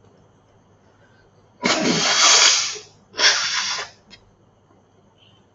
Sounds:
Sneeze